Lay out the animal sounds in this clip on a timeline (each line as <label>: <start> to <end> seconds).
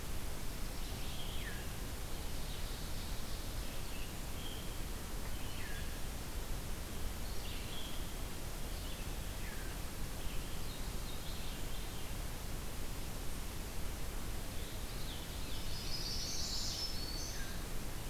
Ovenbird (Seiurus aurocapilla): 2.0 to 4.0 seconds
Red-eyed Vireo (Vireo olivaceus): 7.2 to 10.7 seconds
Veery (Catharus fuscescens): 11.0 to 12.2 seconds
Veery (Catharus fuscescens): 14.5 to 16.1 seconds
Chestnut-sided Warbler (Setophaga pensylvanica): 15.7 to 16.8 seconds
Black-throated Green Warbler (Setophaga virens): 16.6 to 17.6 seconds